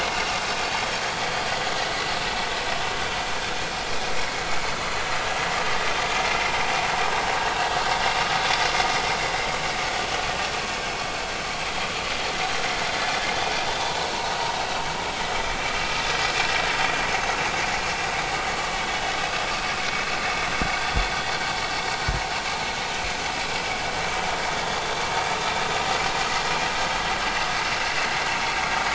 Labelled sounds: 0.0	0.3	vessel noise, 4.5 to 4.6 kHz
1.8	2.1	vessel noise, 1.8 to 2.0 kHz

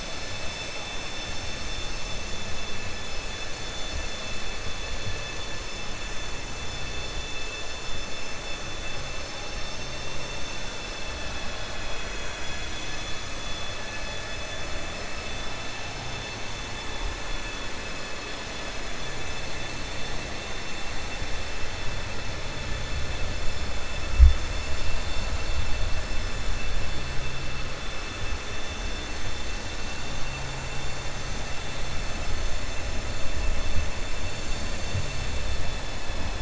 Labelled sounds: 20.3	20.9	vessel noise, 2.6 to 4.5 kHz

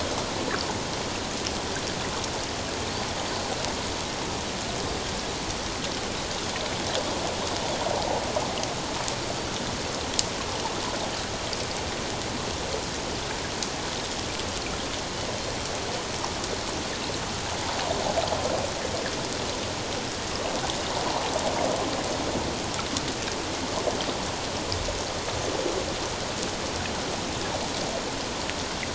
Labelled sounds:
21.0	21.3	water noise, 0.81 to 1.0 kHz

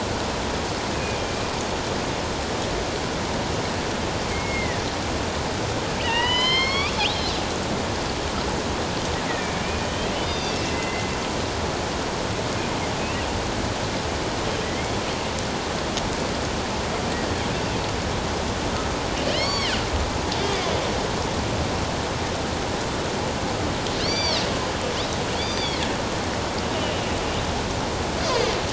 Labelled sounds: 0.9	1.3	killer whale, northern resident, A clan, AB subclan, 2.3 to 2.6 kHz
4.3	4.8	killer whale, northern resident, A clan, AB subclan, 1.7 to 2.2 kHz
6.0	7.4	killer whale, northern resident, A clan, AB subclan, 0.84 to 5.7 kHz
9.6	11.1	killer whale, northern resident, A clan, AB subclan, 1.9 to 6.1 kHz
13.0	13.3	killer whale, northern resident, A clan, AB subclan, 2.5 to 2.9 kHz
14.6	14.9	killer whale, northern resident, A clan, AB subclan, 1.9 to 2.3 kHz
19.3	19.7	killer whale, northern resident, A clan, AB subclan, 1.8 to 6.9 kHz
24.0	24.4	killer whale, northern resident, A clan, AB subclan, 2.1 to 5.9 kHz
25.4	25.8	killer whale, northern resident, A clan, AB subclan, 4.0 to 4.8 kHz

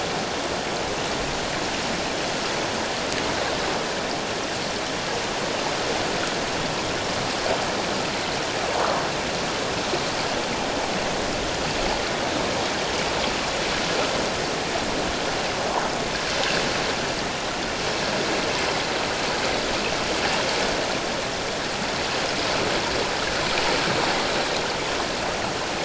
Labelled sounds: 8.7	9.0	water noise, 0.81 to 1.4 kHz

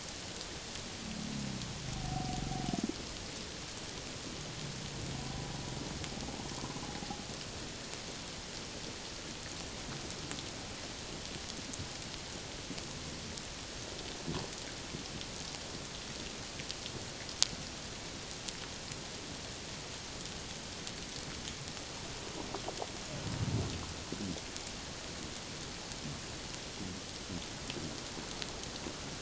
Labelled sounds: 1.9	2.4	humpback whale, 0.78 to 0.84 kHz

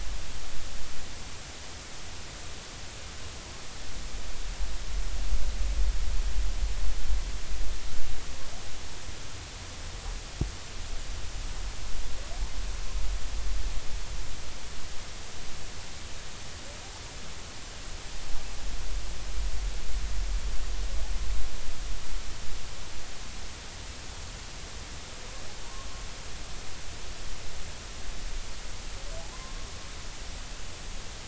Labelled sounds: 30.3	30.7	humpback whale, 0.96 to 1.1 kHz

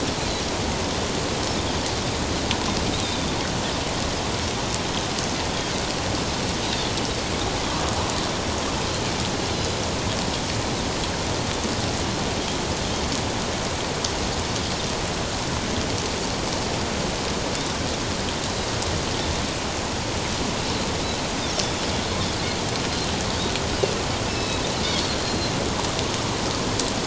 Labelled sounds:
3.0	3.4	Pacific white-sided dolphin, 3.4 to 3.8 kHz
9.5	9.8	Pacific white-sided dolphin, 3.9 to 4.2 kHz
24.3	24.6	Pacific white-sided dolphin, 2.5 to 4.0 kHz
25.2	25.5	Pacific white-sided dolphin, 4.0 to 4.3 kHz

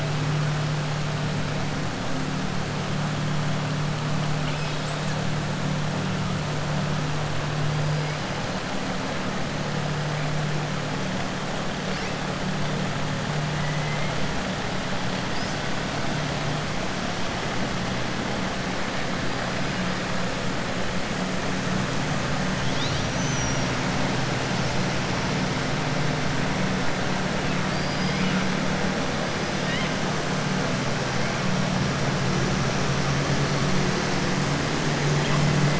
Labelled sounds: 4.3	5.0	killer whale, southern resident, 2.3 to 5.3 kHz
13.7	14.1	killer whale, southern resident, 2.0 to 3.1 kHz
22.6	23.7	killer whale, southern resident, 3.0 to 6.6 kHz

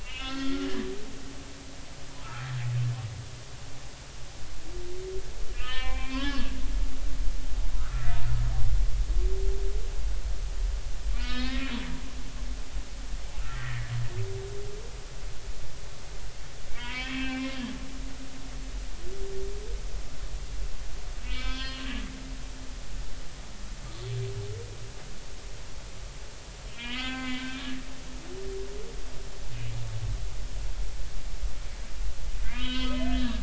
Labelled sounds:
0.0	1.5	humpback whale, 1.3 to 5.4 kHz
2.2	2.5	humpback whale, 1.2 to 1.5 kHz
5.5	6.5	humpback whale, 0.80 to 3.5 kHz
7.8	8.1	humpback whale, 1.1 to 1.6 kHz
11.1	12.4	humpback whale, 1.2 to 5.1 kHz
13.5	13.9	humpback whale, 1.7 to 2.3 kHz
16.7	17.5	humpback whale, 0.90 to 3.4 kHz
21.2	21.9	humpback whale, 0.99 to 5.1 kHz
26.7	27.6	humpback whale, 0.80 to 7.0 kHz
32.4	33.4	humpback whale, 0.96 to 4.7 kHz

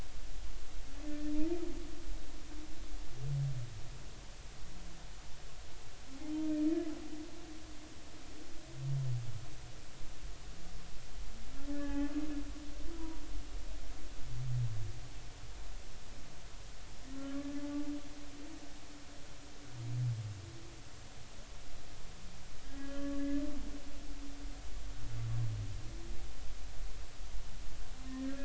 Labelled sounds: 1.1	1.3	humpback whale, 1.7 to 1.9 kHz
11.7	12.1	humpback whale, 0.80 to 2.6 kHz
12.9	13.2	humpback whale, 0.93 to 1.0 kHz
17.4	17.6	humpback whale, 1.7 to 1.8 kHz
22.8	23.2	humpback whale, 1.1 to 1.8 kHz

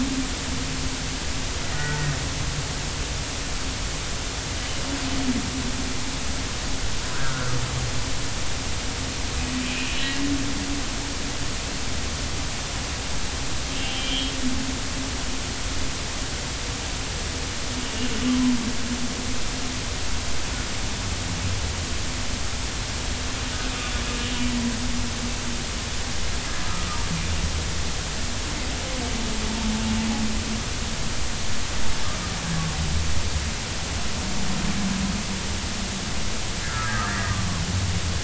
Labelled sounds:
1.7	2.1	humpback whale, 1.3 to 2.0 kHz
7.1	7.5	humpback whale, 1.2 to 1.7 kHz
13.8	14.4	humpback whale, 2.8 to 3.5 kHz
36.7	37.5	humpback whale, 1.1 to 2.0 kHz

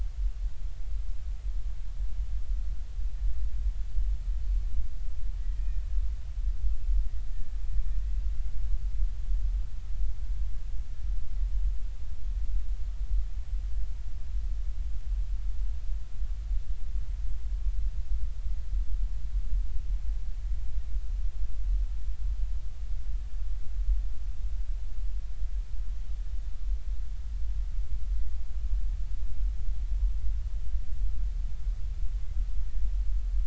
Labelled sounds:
5.4	5.7	killer whale, Bigg's (transient), 1.8 to 2.0 kHz
7.3	7.6	killer whale, Bigg's (transient), 1.7 to 1.9 kHz

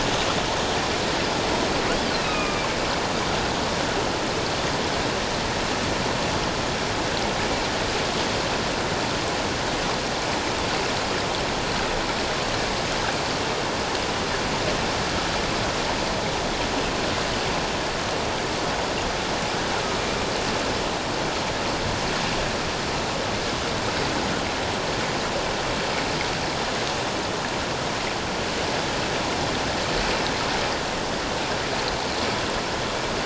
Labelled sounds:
2.2	2.6	killer whale, northern resident, A clan, AA subclan, A01 pod, 1.1 to 2.7 kHz

